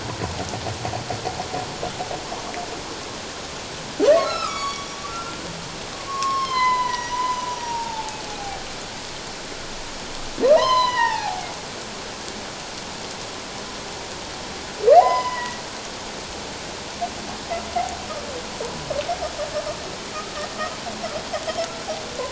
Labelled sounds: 4.2	5.4	humpback whale, 1.1 to 8.0 kHz
6.0	8.6	humpback whale, 0.78 to 6.1 kHz
10.5	11.5	humpback whale, 0.78 to 6.3 kHz
15.0	15.6	humpback whale, 0.78 to 5.2 kHz

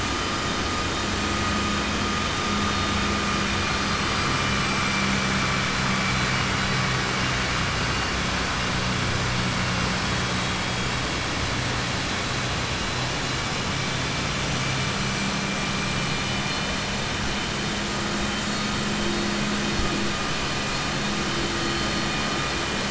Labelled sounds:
15.7	16.9	vessel noise, 2.4 to 4.3 kHz

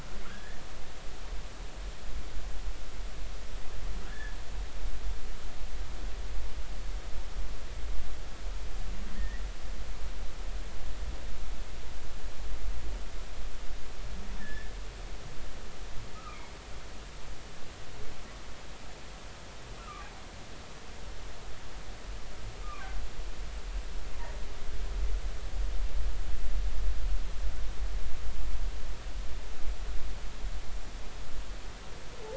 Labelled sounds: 0.3	0.6	humpback whale, 1.5 to 1.9 kHz
4.1	4.4	humpback whale, 1.6 to 1.8 kHz
9.2	9.4	humpback whale, 1.7 to 2.0 kHz
14.4	14.7	humpback whale, 1.6 to 1.9 kHz
16.1	16.5	humpback whale, 1.2 to 2.5 kHz
19.8	20.1	humpback whale, 1.1 to 1.5 kHz
22.6	22.9	humpback whale, 1.1 to 1.3 kHz

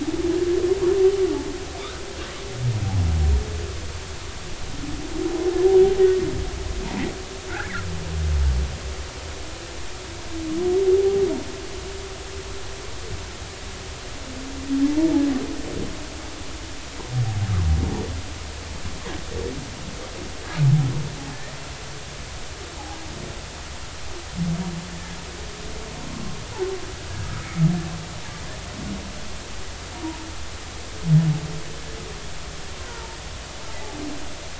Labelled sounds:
7.5	7.8	humpback whale, 1.3 to 2.0 kHz
32.8	33.2	humpback whale, 0.86 to 1.6 kHz

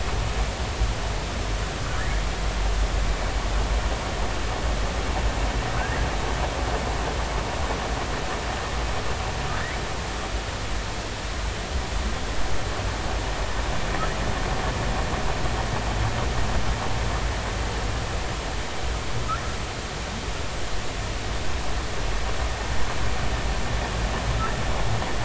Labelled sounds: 5.7	6.0	humpback whale, 1.5 to 2.0 kHz

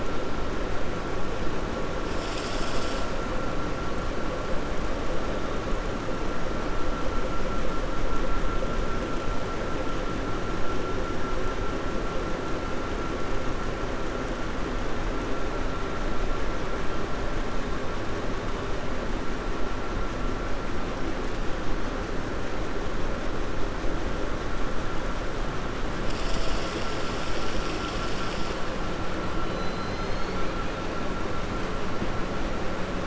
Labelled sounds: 29.5	30.3	killer whale, 3.2 to 5.1 kHz

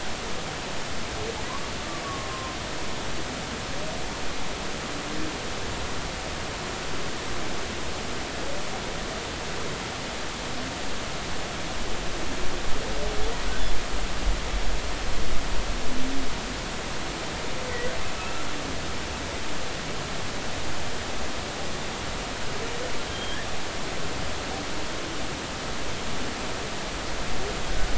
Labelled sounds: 2.0	2.6	humpback whale, 0.93 to 1.2 kHz
18.2	18.5	humpback whale, 1.2 to 1.4 kHz
23.1	23.4	humpback whale, 3.1 to 3.5 kHz

